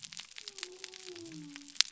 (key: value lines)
label: biophony
recorder: SoundTrap 300